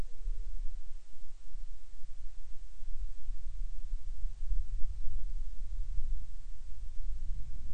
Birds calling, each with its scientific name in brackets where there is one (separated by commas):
Hawaiian Petrel (Pterodroma sandwichensis)